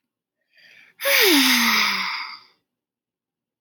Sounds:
Sigh